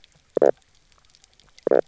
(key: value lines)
label: biophony, knock croak
recorder: SoundTrap 300